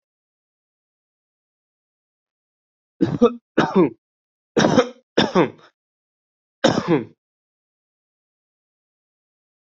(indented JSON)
{
  "expert_labels": [
    {
      "quality": "good",
      "cough_type": "dry",
      "dyspnea": false,
      "wheezing": false,
      "stridor": false,
      "choking": false,
      "congestion": false,
      "nothing": true,
      "diagnosis": "COVID-19",
      "severity": "mild"
    }
  ],
  "age": 20,
  "gender": "male",
  "respiratory_condition": false,
  "fever_muscle_pain": false,
  "status": "healthy"
}